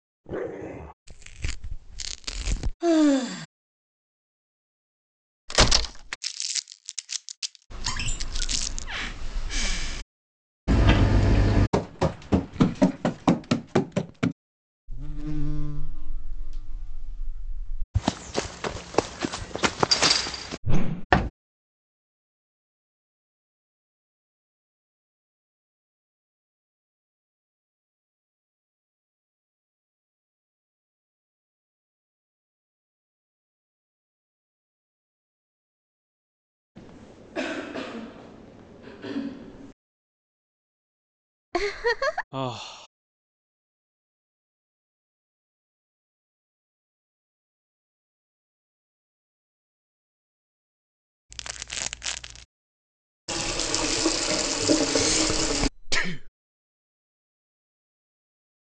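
At the start, growling can be heard. Then, about 1 second in, there is tearing. Next, at 3 seconds, someone sighs. At 5 seconds, cracking is heard. After that, at 6 seconds, crumpling can be heard. Over it, at about 8 seconds, a wooden cupboard opens. Following that, at 11 seconds, the sound of a dishwasher is heard. Then, at 12 seconds, someone runs. At 15 seconds, there is buzzing. Next, at 18 seconds, a person runs. At 21 seconds, you can hear whooshing. After that, at 21 seconds, a drawer closes. Then, about 37 seconds in, someone coughs. Later, at around 42 seconds, someone giggles, and next, about 42 seconds in, a person sighs. Following that, at around 51 seconds, there is crumpling. Next, about 53 seconds in, you can hear a water tap, and while that goes on, breathing is audible.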